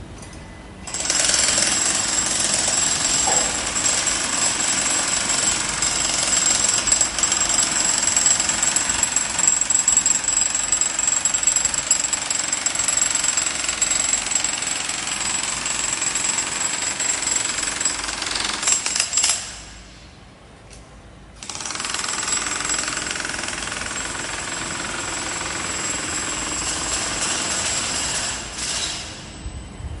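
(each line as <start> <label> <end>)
0.9 A continuous drilling sound. 19.4
21.3 A continuous drilling sound. 30.0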